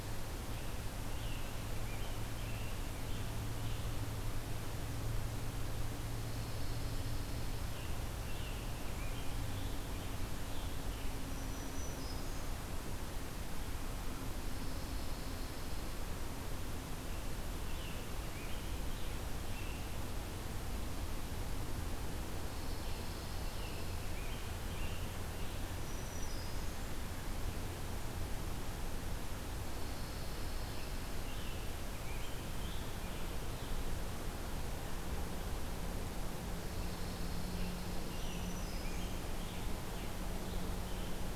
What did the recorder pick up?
American Robin, Pine Warbler, Black-throated Green Warbler